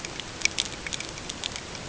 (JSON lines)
{"label": "ambient", "recorder": "HydroMoth"}